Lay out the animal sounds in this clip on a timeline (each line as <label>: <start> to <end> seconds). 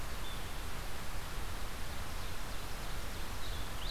Red-eyed Vireo (Vireo olivaceus): 0.0 to 3.9 seconds
Ovenbird (Seiurus aurocapilla): 1.7 to 3.3 seconds